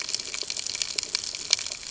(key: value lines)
label: ambient
recorder: HydroMoth